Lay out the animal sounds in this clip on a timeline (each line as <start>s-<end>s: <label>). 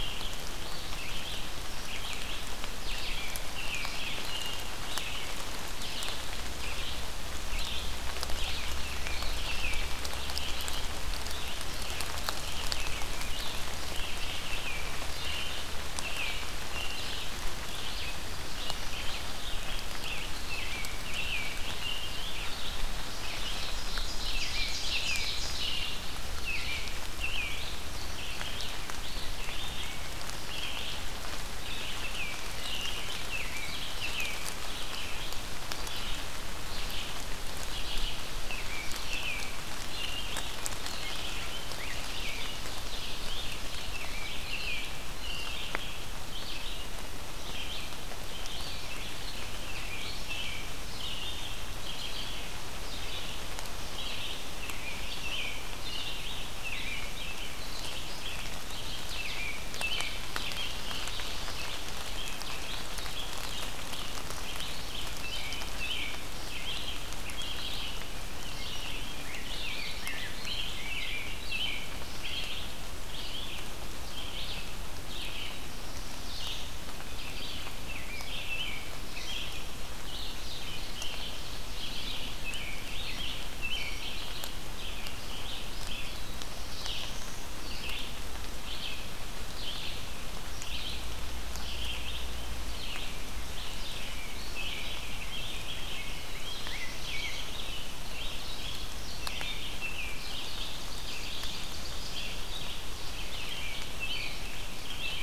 0.0s-105.2s: Red-eyed Vireo (Vireo olivaceus)
2.9s-5.4s: American Robin (Turdus migratorius)
8.6s-9.9s: American Robin (Turdus migratorius)
15.1s-17.1s: American Robin (Turdus migratorius)
20.4s-22.8s: American Robin (Turdus migratorius)
23.0s-26.1s: Ovenbird (Seiurus aurocapilla)
24.2s-26.0s: American Robin (Turdus migratorius)
26.3s-27.7s: American Robin (Turdus migratorius)
31.6s-35.1s: American Robin (Turdus migratorius)
38.5s-40.7s: American Robin (Turdus migratorius)
41.4s-42.7s: Rose-breasted Grosbeak (Pheucticus ludovicianus)
43.6s-45.7s: American Robin (Turdus migratorius)
49.6s-52.3s: American Robin (Turdus migratorius)
54.5s-57.6s: American Robin (Turdus migratorius)
59.1s-63.5s: American Robin (Turdus migratorius)
65.2s-67.8s: American Robin (Turdus migratorius)
68.3s-72.1s: Rose-breasted Grosbeak (Pheucticus ludovicianus)
69.3s-72.8s: American Robin (Turdus migratorius)
75.2s-76.7s: Black-throated Blue Warbler (Setophaga caerulescens)
77.0s-79.6s: American Robin (Turdus migratorius)
80.3s-82.1s: Ovenbird (Seiurus aurocapilla)
81.8s-84.6s: American Robin (Turdus migratorius)
85.8s-87.6s: Black-throated Blue Warbler (Setophaga caerulescens)
94.5s-95.9s: American Robin (Turdus migratorius)
94.9s-97.5s: Rose-breasted Grosbeak (Pheucticus ludovicianus)
95.9s-97.5s: Black-throated Blue Warbler (Setophaga caerulescens)
99.0s-100.8s: American Robin (Turdus migratorius)
100.2s-102.3s: Ovenbird (Seiurus aurocapilla)
103.1s-105.2s: American Robin (Turdus migratorius)